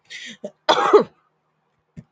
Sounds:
Sneeze